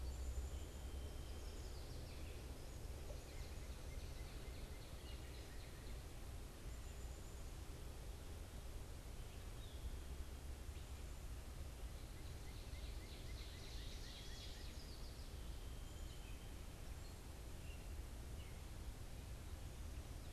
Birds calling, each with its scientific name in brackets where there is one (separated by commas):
Northern Cardinal (Cardinalis cardinalis), Ovenbird (Seiurus aurocapilla)